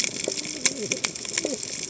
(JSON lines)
{"label": "biophony, cascading saw", "recorder": "HydroMoth"}